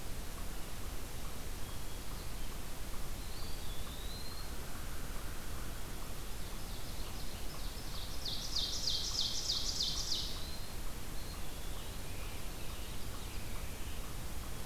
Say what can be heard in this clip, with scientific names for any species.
Contopus virens, Corvus brachyrhynchos, Seiurus aurocapilla, Piranga olivacea